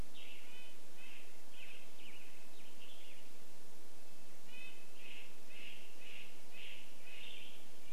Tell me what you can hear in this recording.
Western Tanager song, Red-breasted Nuthatch song, Black-headed Grosbeak song, Western Tanager call